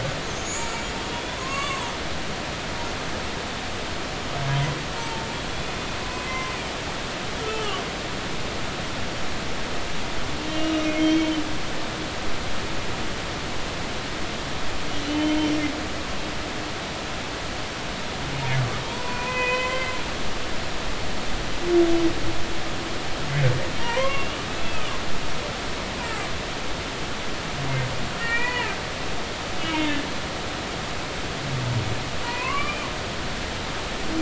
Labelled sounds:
0.3	1.9	humpback whale, 0.90 to 8.0 kHz
5.0	5.3	humpback whale, 0.83 to 0.96 kHz
6.1	6.5	humpback whale, 2.0 to 2.6 kHz
7.4	7.8	humpback whale, 1.1 to 3.1 kHz
10.8	11.4	humpback whale, 2.1 to 3.3 kHz
15.0	15.4	humpback whale, 2.8 to 3.1 kHz
18.9	19.9	humpback whale, 0.90 to 3.2 kHz
23.8	24.9	humpback whale, 0.90 to 3.0 kHz
28.2	28.7	humpback whale, 0.86 to 2.5 kHz
29.6	30.0	humpback whale, 2.0 to 3.0 kHz
32.2	32.9	humpback whale, 0.90 to 3.1 kHz

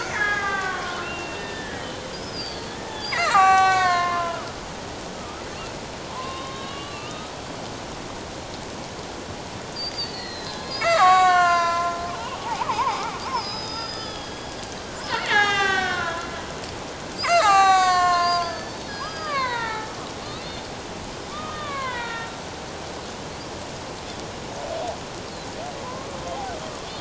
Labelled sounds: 0.0	4.5	killer whale, Bigg's (transient), 0.78 to 7.7 kHz
5.2	7.3	killer whale, Bigg's (transient), 0.84 to 4.2 kHz
9.7	14.5	killer whale, Bigg's (transient), 0.78 to 7.8 kHz
15.1	16.3	killer whale, Bigg's (transient), 0.78 to 7.8 kHz
17.2	19.9	killer whale, Bigg's (transient), 0.78 to 8.0 kHz
21.3	22.4	killer whale, Bigg's (transient), 0.91 to 3.9 kHz
25.8	26.1	killer whale, Bigg's (transient), 0.94 to 1.1 kHz

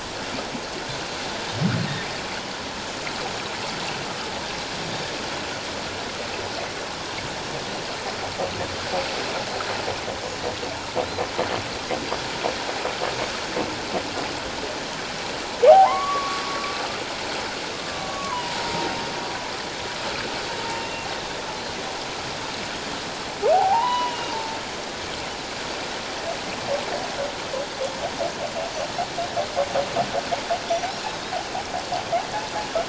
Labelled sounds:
15.6	16.4	humpback whale, 0.78 to 1.2 kHz
17.9	18.9	humpback whale, 0.84 to 1.2 kHz
20.6	21.4	humpback whale, 0.81 to 3.8 kHz
23.5	24.6	humpback whale, 0.78 to 3.0 kHz

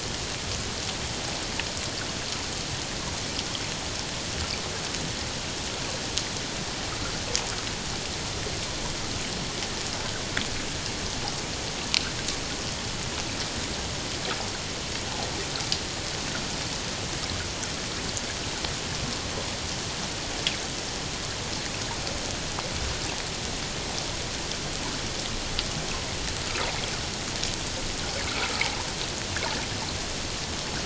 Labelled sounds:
28.5	28.8	water noise, 0.78 to 0.97 kHz

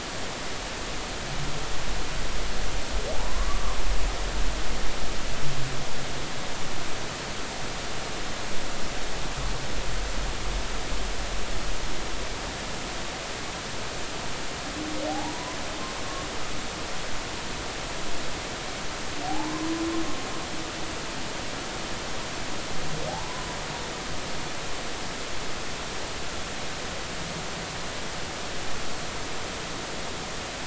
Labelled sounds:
3.1	3.8	humpback whale, 0.80 to 1.2 kHz
15.1	15.6	humpback whale, 0.80 to 1.1 kHz
19.3	19.7	humpback whale, 0.80 to 1.1 kHz

